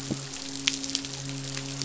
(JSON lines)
{"label": "biophony, midshipman", "recorder": "SoundTrap 500"}